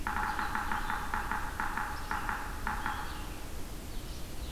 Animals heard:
Red-eyed Vireo (Vireo olivaceus)
Yellow-bellied Sapsucker (Sphyrapicus varius)

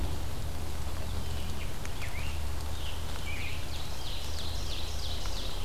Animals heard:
Scarlet Tanager (Piranga olivacea)
Ovenbird (Seiurus aurocapilla)

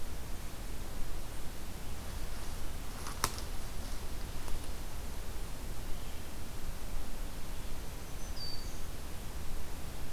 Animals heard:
Black-throated Green Warbler (Setophaga virens)

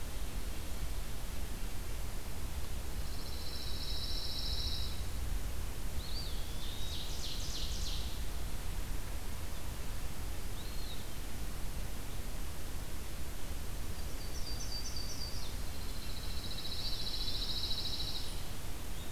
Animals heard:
Eastern Wood-Pewee (Contopus virens)
Yellow-rumped Warbler (Setophaga coronata)
Ovenbird (Seiurus aurocapilla)
Pine Warbler (Setophaga pinus)

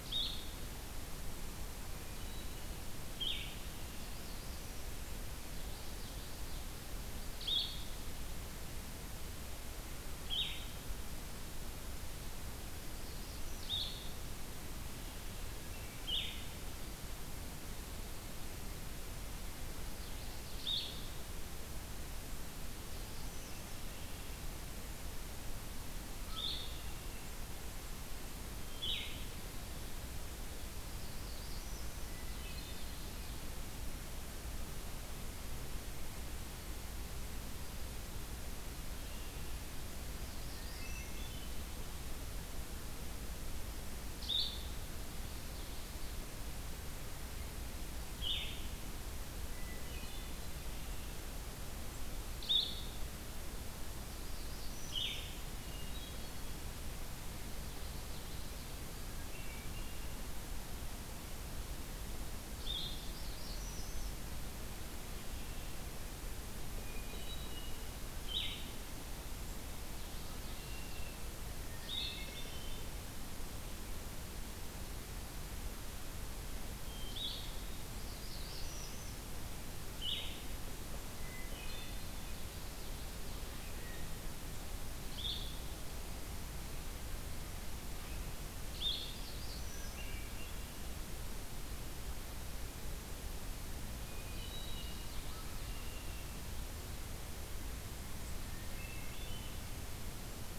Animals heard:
Blue-headed Vireo (Vireo solitarius)
Red-winged Blackbird (Agelaius phoeniceus)
Hermit Thrush (Catharus guttatus)
Blackburnian Warbler (Setophaga fusca)
Common Yellowthroat (Geothlypis trichas)
Yellow-rumped Warbler (Setophaga coronata)

